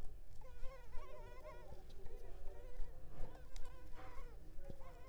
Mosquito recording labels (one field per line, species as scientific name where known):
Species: Culex pipiens complex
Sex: female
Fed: unfed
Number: one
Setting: cup